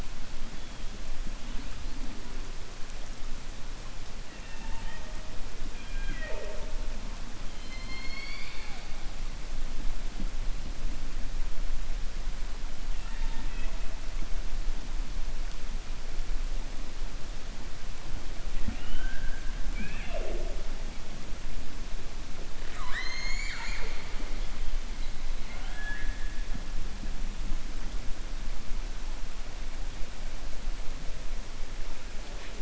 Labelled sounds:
7.5	8.8	killer whale, 0.84 to 5.4 kHz
22.6	24.1	killer whale, 0.89 to 7.5 kHz

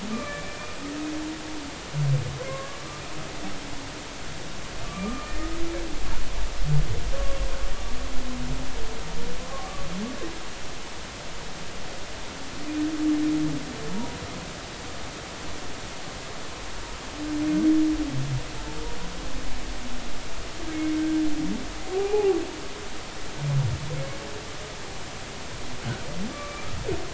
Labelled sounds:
0.1	0.6	humpback whale, 1.1 to 2.5 kHz
2.5	2.8	humpback whale, 0.99 to 1.2 kHz
4.8	5.5	humpback whale, 1.1 to 2.0 kHz
9.5	9.9	humpback whale, 1.0 to 1.2 kHz
21.0	21.2	humpback whale, 1.5 to 1.6 kHz
22.0	22.4	humpback whale, 0.80 to 2.6 kHz
26.3	26.6	humpback whale, 1.1 to 1.2 kHz

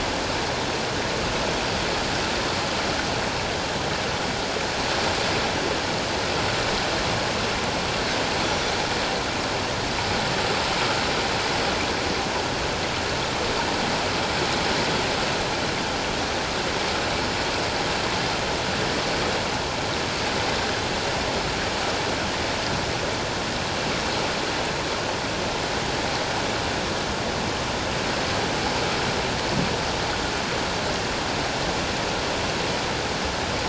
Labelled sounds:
8.4	8.7	Pacific white-sided dolphin, 5.6 to 5.9 kHz

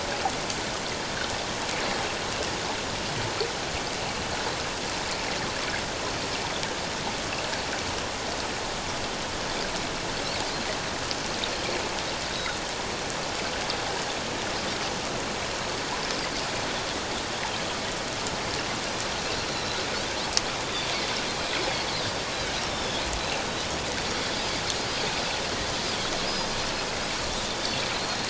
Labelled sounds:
19.5	20.9	Pacific white-sided dolphin, 3.4 to 4.2 kHz
22.7	23.0	Pacific white-sided dolphin, 3.3 to 3.6 kHz
26.3	26.6	Pacific white-sided dolphin, 4.6 to 5.1 kHz

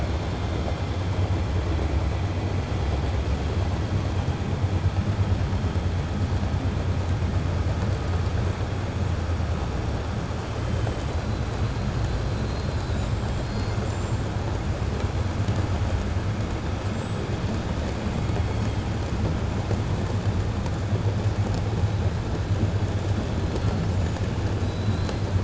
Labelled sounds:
12.3	13.1	killer whale, 3.8 to 5.0 kHz
13.6	14.2	killer whale, 6.3 to 7.8 kHz

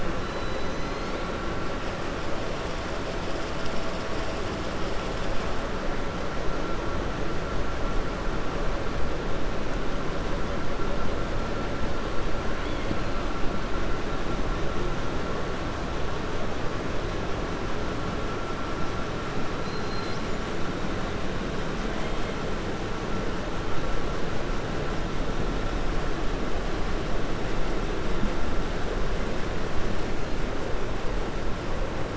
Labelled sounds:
0.2	1.1	killer whale, 3.0 to 6.2 kHz
19.6	20.4	killer whale, 3.5 to 7.8 kHz

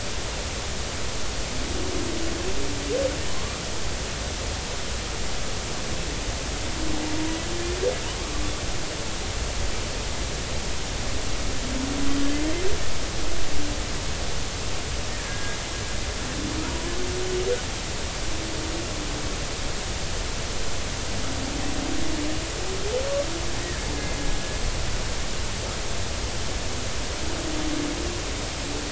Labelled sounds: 15.2	15.6	killer whale, Bigg's (transient), 1.6 to 1.8 kHz

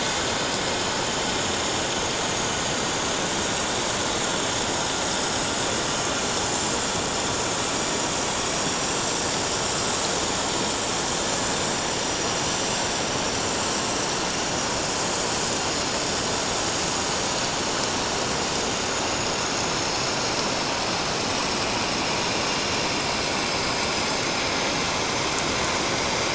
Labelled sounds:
3.4	3.8	vessel noise, 5.5 to 5.7 kHz
5.1	5.4	vessel noise, 5.1 to 5.3 kHz
8.4	8.7	vessel noise, 7.6 to 7.8 kHz
14.4	15.0	vessel noise, 6.2 to 6.8 kHz
15.6	15.9	vessel noise, 5.0 to 5.1 kHz
19.1	19.3	vessel noise, 6.6 to 7.1 kHz
23.4	23.6	vessel noise, 6.2 to 6.4 kHz

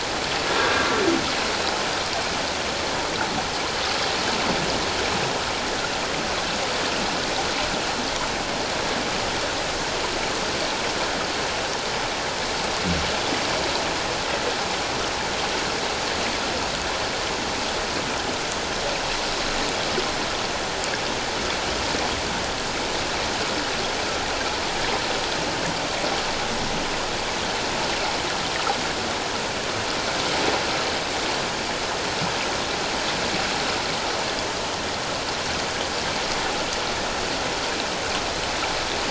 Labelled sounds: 0.6	0.9	humpback whale, 1.5 to 1.8 kHz

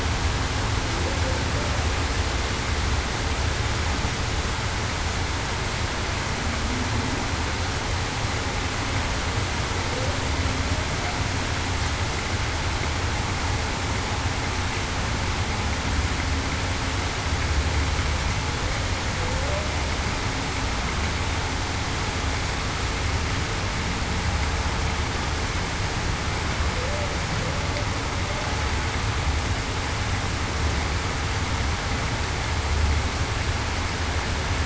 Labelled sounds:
19.1	19.7	humpback whale, 0.49 to 0.63 kHz
26.7	27.1	humpback whale, 0.49 to 0.61 kHz

